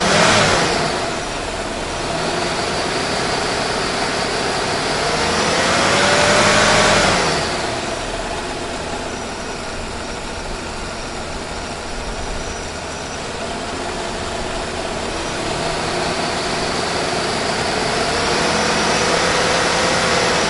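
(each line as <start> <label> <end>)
0.0 A machine sound nearby rising and falling. 20.5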